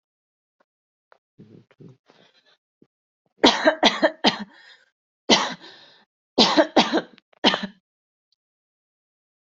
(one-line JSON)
{"expert_labels": [{"quality": "good", "cough_type": "dry", "dyspnea": false, "wheezing": false, "stridor": false, "choking": false, "congestion": false, "nothing": true, "diagnosis": "upper respiratory tract infection", "severity": "mild"}], "age": 28, "gender": "female", "respiratory_condition": false, "fever_muscle_pain": false, "status": "COVID-19"}